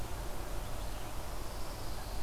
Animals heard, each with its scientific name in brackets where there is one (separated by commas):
Pine Warbler (Setophaga pinus)